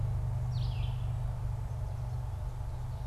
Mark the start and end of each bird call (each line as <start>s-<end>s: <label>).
0.3s-1.2s: Red-eyed Vireo (Vireo olivaceus)